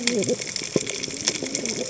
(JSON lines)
{"label": "biophony, cascading saw", "recorder": "HydroMoth"}